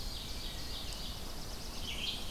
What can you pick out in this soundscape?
Ovenbird, Black-throated Blue Warbler, Red-eyed Vireo, Tennessee Warbler